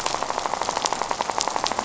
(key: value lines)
label: biophony, rattle
recorder: SoundTrap 500